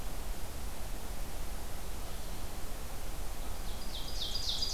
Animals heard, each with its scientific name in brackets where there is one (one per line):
Blue-headed Vireo (Vireo solitarius)
Ovenbird (Seiurus aurocapilla)